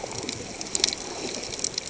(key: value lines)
label: ambient
recorder: HydroMoth